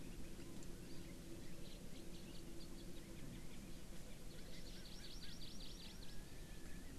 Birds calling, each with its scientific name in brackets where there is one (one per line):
Hawaii Amakihi (Chlorodrepanis virens)